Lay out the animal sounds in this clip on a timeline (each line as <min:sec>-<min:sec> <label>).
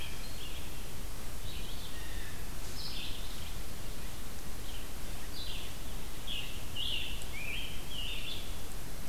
0:00.0-0:09.1 Red-eyed Vireo (Vireo olivaceus)
0:01.7-0:02.5 Blue Jay (Cyanocitta cristata)
0:06.2-0:08.5 Scarlet Tanager (Piranga olivacea)